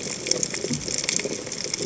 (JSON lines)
{"label": "biophony", "recorder": "HydroMoth"}